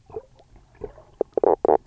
{"label": "biophony, knock croak", "recorder": "SoundTrap 300"}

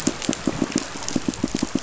{"label": "biophony, pulse", "recorder": "SoundTrap 500"}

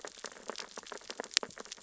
{"label": "biophony, sea urchins (Echinidae)", "recorder": "SoundTrap 600 or HydroMoth"}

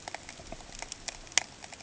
{"label": "ambient", "recorder": "HydroMoth"}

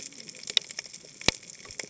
{"label": "biophony, cascading saw", "recorder": "HydroMoth"}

